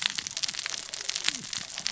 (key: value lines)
label: biophony, cascading saw
recorder: SoundTrap 600 or HydroMoth